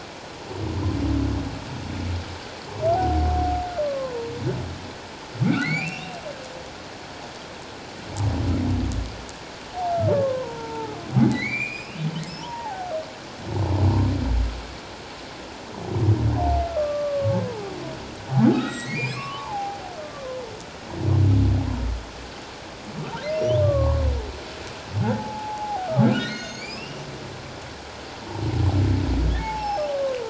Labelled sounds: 3.8	4.3	humpback whale, 0.91 to 1.2 kHz
5.4	6.2	humpback whale, 1.3 to 4.8 kHz
10.1	12.9	humpback whale, 0.78 to 5.4 kHz
16.7	17.8	humpback whale, 0.78 to 1.4 kHz
18.5	20.3	humpback whale, 0.78 to 7.8 kHz
23.3	24.0	humpback whale, 0.94 to 5.9 kHz
25.1	27.0	humpback whale, 0.78 to 8.0 kHz
29.4	30.2	humpback whale, 0.78 to 5.6 kHz

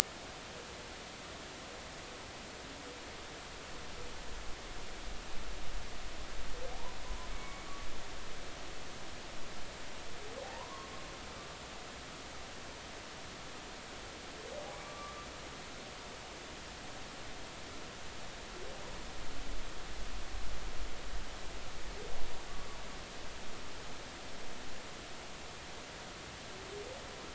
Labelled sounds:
7.3	7.6	humpback whale, 2.1 to 2.3 kHz
10.4	10.9	humpback whale, 0.80 to 1.2 kHz
14.8	15.2	humpback whale, 1.1 to 1.3 kHz

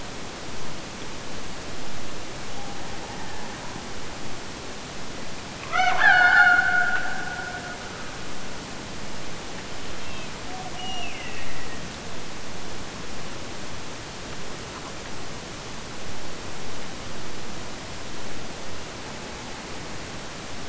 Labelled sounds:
5.6	8.5	killer whale, Bigg's (transient), Gulf of Alaska transient, 0.53 to 6.2 kHz
10.5	12.0	killer whale, Bigg's (transient), Gulf of Alaska transient, 0.55 to 3.0 kHz

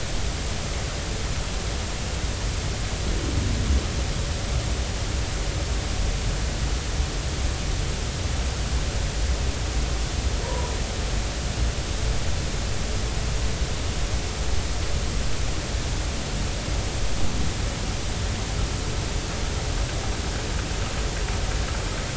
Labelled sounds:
10.4	10.7	humpback whale, 0.90 to 1.1 kHz

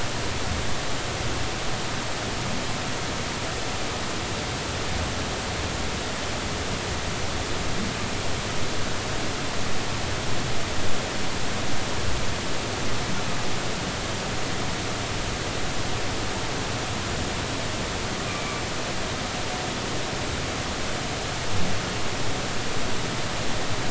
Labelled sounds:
18.3	18.6	humpback whale, 2.1 to 2.5 kHz

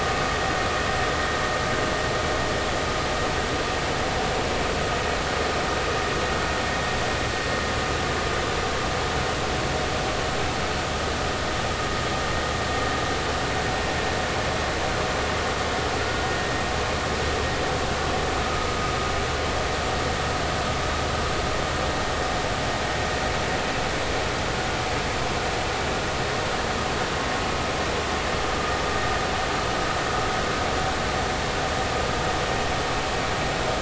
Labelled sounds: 18.4	18.7	vessel noise, 1.2 to 1.3 kHz

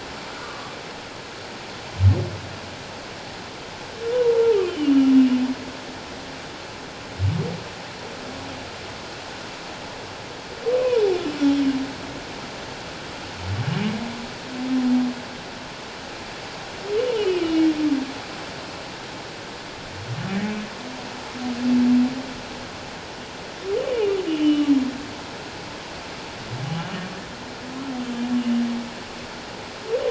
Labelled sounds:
0.4	0.8	humpback whale, 1.1 to 1.2 kHz
4.1	5.0	humpback whale, 0.88 to 3.2 kHz
11.4	11.8	humpback whale, 2.8 to 3.1 kHz
17.1	17.7	humpback whale, 2.8 to 3.2 kHz
24.4	24.7	humpback whale, 2.8 to 3.1 kHz

